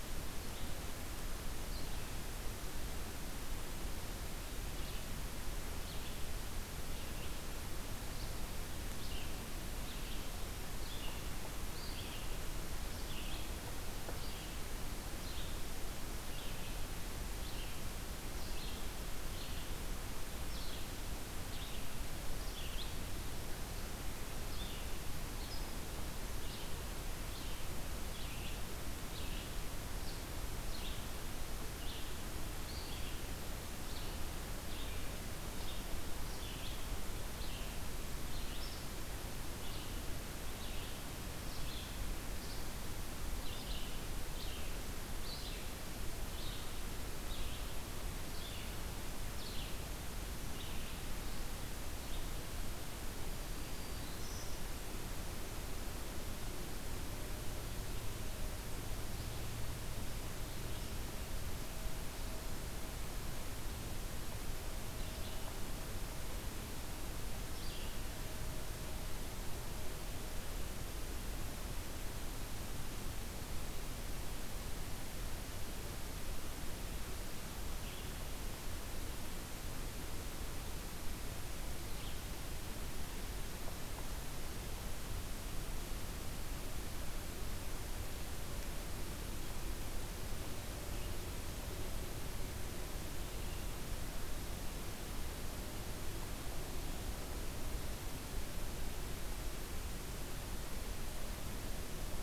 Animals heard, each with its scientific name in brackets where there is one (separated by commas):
Red-eyed Vireo (Vireo olivaceus), Black-throated Green Warbler (Setophaga virens)